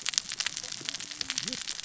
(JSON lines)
{"label": "biophony, cascading saw", "recorder": "SoundTrap 600 or HydroMoth"}